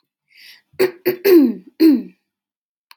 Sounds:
Throat clearing